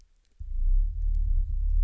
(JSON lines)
{"label": "anthrophony, boat engine", "recorder": "SoundTrap 300"}